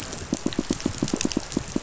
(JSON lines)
{"label": "biophony, pulse", "recorder": "SoundTrap 500"}